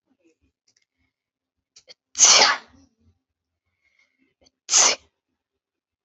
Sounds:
Sneeze